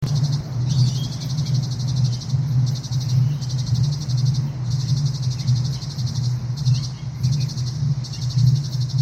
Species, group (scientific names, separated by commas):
Gymnotympana varicolor, Cicadidae